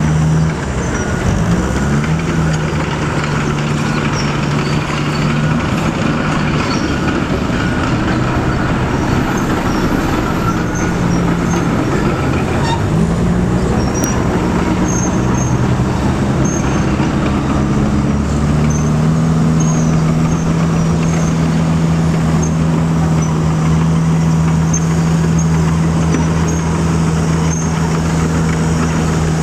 Is the radio playing in the vehicle?
no